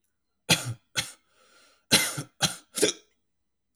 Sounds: Cough